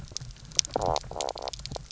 {"label": "biophony, knock croak", "recorder": "SoundTrap 300"}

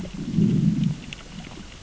{"label": "biophony, growl", "recorder": "SoundTrap 600 or HydroMoth"}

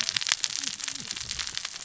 {"label": "biophony, cascading saw", "recorder": "SoundTrap 600 or HydroMoth"}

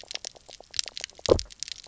{"label": "biophony, knock croak", "recorder": "SoundTrap 300"}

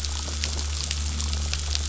{"label": "anthrophony, boat engine", "recorder": "SoundTrap 500"}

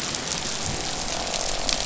{"label": "biophony, croak", "recorder": "SoundTrap 500"}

